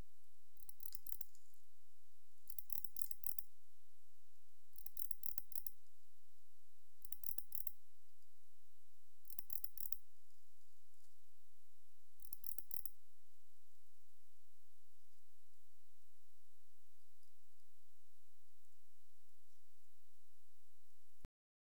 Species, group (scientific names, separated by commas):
Barbitistes yersini, Orthoptera